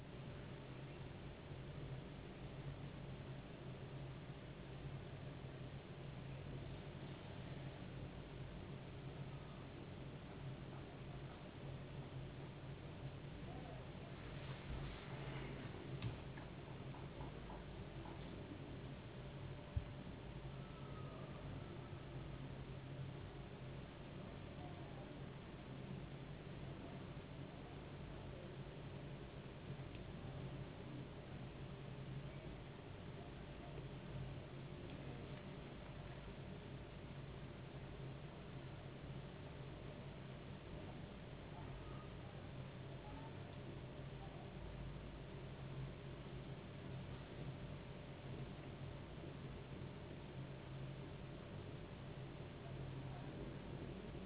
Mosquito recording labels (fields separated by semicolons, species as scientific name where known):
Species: no mosquito; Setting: insect culture